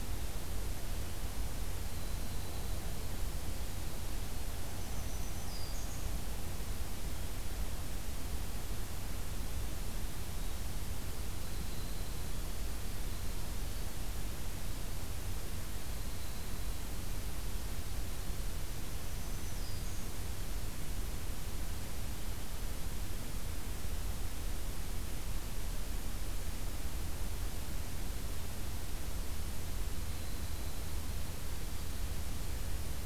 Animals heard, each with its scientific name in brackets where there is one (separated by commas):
Black-throated Green Warbler (Setophaga virens), Winter Wren (Troglodytes hiemalis)